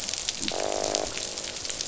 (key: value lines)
label: biophony, croak
recorder: SoundTrap 500